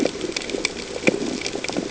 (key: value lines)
label: ambient
recorder: HydroMoth